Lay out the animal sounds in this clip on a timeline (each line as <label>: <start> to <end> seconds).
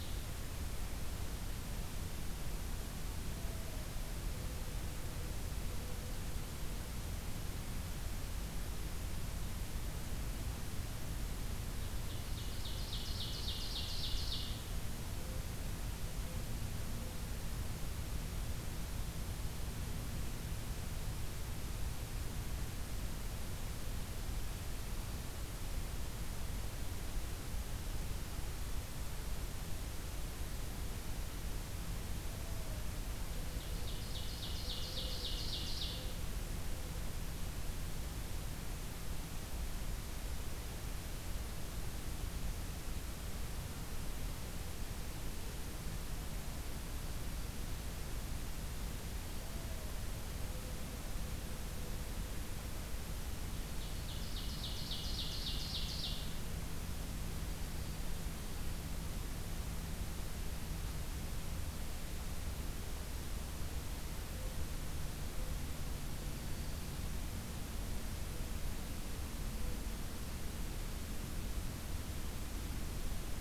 Ovenbird (Seiurus aurocapilla): 0.0 to 0.3 seconds
Ovenbird (Seiurus aurocapilla): 11.8 to 14.6 seconds
Ovenbird (Seiurus aurocapilla): 33.4 to 36.1 seconds
Ovenbird (Seiurus aurocapilla): 53.5 to 56.3 seconds
Dark-eyed Junco (Junco hyemalis): 65.9 to 67.1 seconds